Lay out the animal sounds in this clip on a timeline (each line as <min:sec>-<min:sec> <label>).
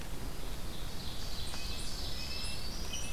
0:00.0-0:02.6 Ovenbird (Seiurus aurocapilla)
0:01.3-0:03.1 Red-breasted Nuthatch (Sitta canadensis)
0:01.7-0:03.1 Black-throated Green Warbler (Setophaga virens)